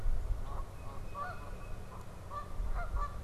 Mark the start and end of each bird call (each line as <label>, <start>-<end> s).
Canada Goose (Branta canadensis), 0.0-3.2 s
Red-winged Blackbird (Agelaius phoeniceus), 0.3-0.5 s
Tufted Titmouse (Baeolophus bicolor), 0.5-2.2 s